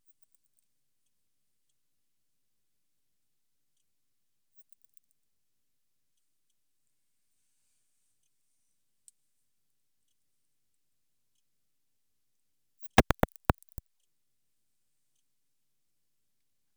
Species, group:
Odontura maroccana, Orthoptera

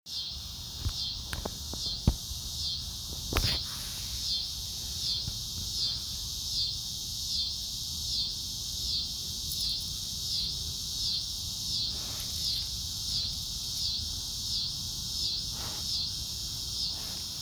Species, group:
Neotibicen winnemanna, Cicadidae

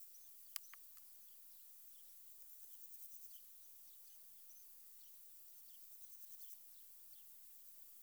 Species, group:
Poecilimon jonicus, Orthoptera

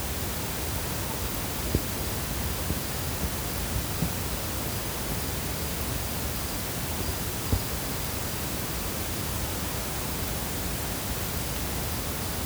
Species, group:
Gryllus bimaculatus, Orthoptera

